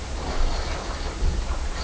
{"label": "biophony", "recorder": "SoundTrap 300"}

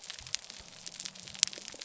{"label": "biophony", "recorder": "SoundTrap 300"}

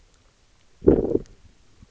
{"label": "biophony, low growl", "recorder": "SoundTrap 300"}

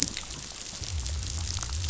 {"label": "biophony", "recorder": "SoundTrap 500"}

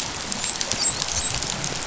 {"label": "biophony, dolphin", "recorder": "SoundTrap 500"}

